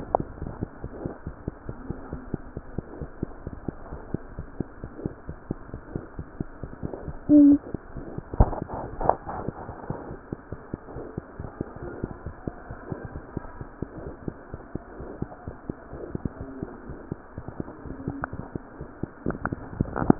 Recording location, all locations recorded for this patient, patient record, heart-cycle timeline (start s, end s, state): pulmonary valve (PV)
aortic valve (AV)+pulmonary valve (PV)
#Age: Infant
#Sex: Male
#Height: 58.0 cm
#Weight: 6.0 kg
#Pregnancy status: False
#Murmur: Absent
#Murmur locations: nan
#Most audible location: nan
#Systolic murmur timing: nan
#Systolic murmur shape: nan
#Systolic murmur grading: nan
#Systolic murmur pitch: nan
#Systolic murmur quality: nan
#Diastolic murmur timing: nan
#Diastolic murmur shape: nan
#Diastolic murmur grading: nan
#Diastolic murmur pitch: nan
#Diastolic murmur quality: nan
#Outcome: Normal
#Campaign: 2015 screening campaign
0.00	9.62	unannotated
9.62	9.76	S1
9.76	9.86	systole
9.86	9.98	S2
9.98	10.07	diastole
10.07	10.18	S1
10.18	10.30	systole
10.30	10.37	S2
10.37	10.49	diastole
10.49	10.59	S1
10.59	10.72	systole
10.72	10.82	S2
10.82	10.92	diastole
10.92	11.04	S1
11.04	11.14	systole
11.14	11.23	S2
11.23	11.36	diastole
11.36	11.48	S1
11.48	11.58	systole
11.58	11.67	S2
11.67	11.78	diastole
11.78	11.92	S1
11.92	12.00	systole
12.00	12.12	S2
12.12	12.25	diastole
12.25	12.33	S1
12.33	12.43	systole
12.43	12.52	S2
12.52	12.68	diastole
12.68	12.77	S1
12.77	12.88	systole
12.88	13.00	S2
13.00	13.12	diastole
13.12	13.24	S1
13.24	13.33	systole
13.33	13.45	S2
13.45	13.57	diastole
13.57	13.67	S1
13.67	13.79	systole
13.79	13.87	S2
13.87	14.02	diastole
14.02	14.14	S1
14.14	14.24	systole
14.24	14.34	S2
14.34	14.50	diastole
14.50	14.61	S1
14.61	14.71	systole
14.71	14.81	S2
14.81	14.97	diastole
14.97	15.08	S1
15.08	15.16	systole
15.16	15.28	S2
15.28	15.42	diastole
15.42	15.54	S1
15.54	15.65	systole
15.65	15.76	S2
15.76	15.89	diastole
15.89	16.01	S1
16.01	16.11	systole
16.11	16.22	S2
16.22	16.37	diastole
16.37	16.44	S1
16.44	16.57	systole
16.57	16.69	S2
16.69	16.86	diastole
16.86	16.96	S1
16.96	17.08	systole
17.08	17.22	S2
17.22	17.36	diastole
17.36	17.46	S1
17.46	17.58	systole
17.58	17.68	S2
17.68	17.83	diastole
17.83	17.94	S1
17.94	20.19	unannotated